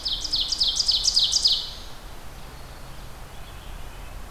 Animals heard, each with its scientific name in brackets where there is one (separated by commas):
Red-breasted Nuthatch (Sitta canadensis), Ovenbird (Seiurus aurocapilla)